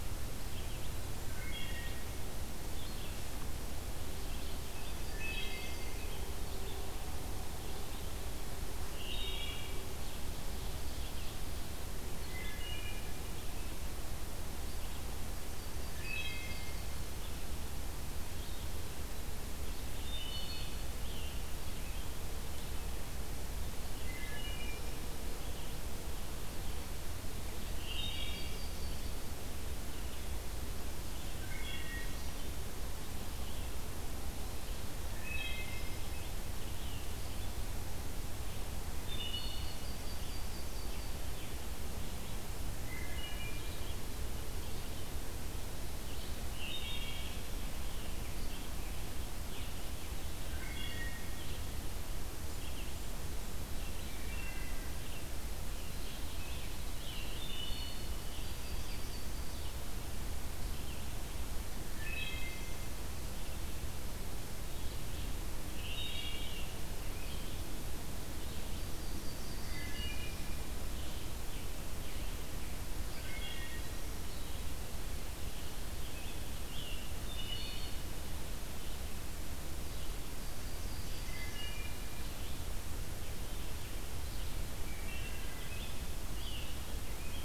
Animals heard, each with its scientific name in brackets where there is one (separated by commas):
Scarlet Tanager (Piranga olivacea), Ovenbird (Seiurus aurocapilla), Yellow-rumped Warbler (Setophaga coronata), Red-eyed Vireo (Vireo olivaceus), Wood Thrush (Hylocichla mustelina)